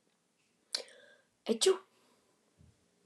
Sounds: Sneeze